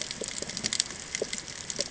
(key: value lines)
label: ambient
recorder: HydroMoth